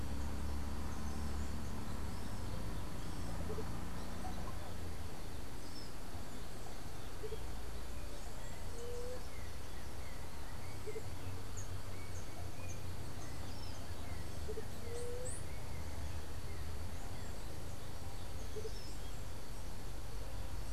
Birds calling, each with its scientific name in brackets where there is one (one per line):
Andean Motmot (Momotus aequatorialis)
White-tipped Dove (Leptotila verreauxi)